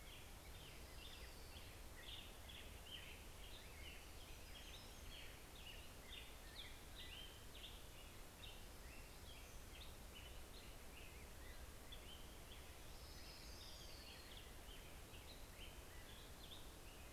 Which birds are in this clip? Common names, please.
Hermit Warbler, Orange-crowned Warbler, Black-headed Grosbeak